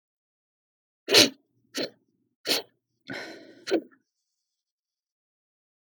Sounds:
Sniff